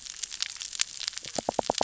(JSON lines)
{"label": "biophony, knock", "recorder": "SoundTrap 600 or HydroMoth"}